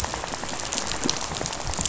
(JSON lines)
{"label": "biophony, rattle", "recorder": "SoundTrap 500"}